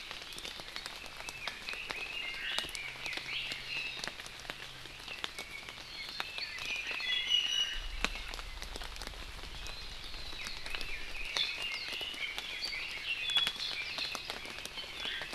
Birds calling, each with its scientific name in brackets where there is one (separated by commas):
Red-billed Leiothrix (Leiothrix lutea), Iiwi (Drepanis coccinea), Omao (Myadestes obscurus)